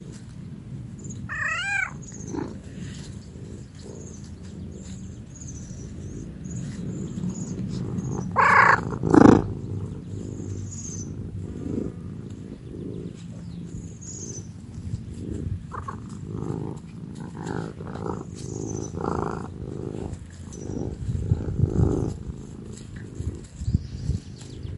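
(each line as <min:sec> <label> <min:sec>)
0:01.2 A cat moans in the garden. 0:01.9
0:08.3 A cat meows. 0:08.9
0:09.0 A cat purrs steadily at various intensities. 0:24.8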